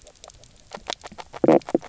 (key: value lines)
label: biophony, knock croak
recorder: SoundTrap 300

label: biophony, grazing
recorder: SoundTrap 300